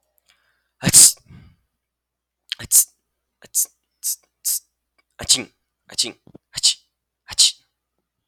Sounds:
Sneeze